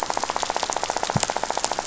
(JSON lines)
{"label": "biophony, rattle", "recorder": "SoundTrap 500"}